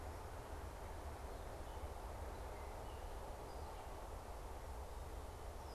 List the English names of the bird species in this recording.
unidentified bird